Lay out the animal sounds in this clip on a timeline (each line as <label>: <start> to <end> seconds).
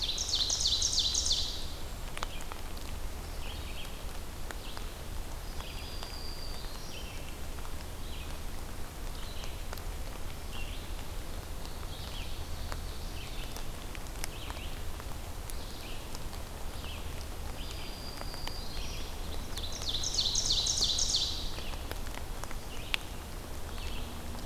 Ovenbird (Seiurus aurocapilla): 0.0 to 2.0 seconds
Red-eyed Vireo (Vireo olivaceus): 0.0 to 13.6 seconds
Black-throated Green Warbler (Setophaga virens): 5.2 to 7.7 seconds
Ovenbird (Seiurus aurocapilla): 11.5 to 13.5 seconds
Red-eyed Vireo (Vireo olivaceus): 14.1 to 24.3 seconds
Black-throated Green Warbler (Setophaga virens): 17.4 to 19.3 seconds
Ovenbird (Seiurus aurocapilla): 19.2 to 22.2 seconds